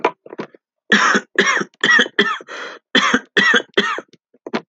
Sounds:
Cough